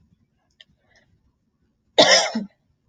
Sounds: Cough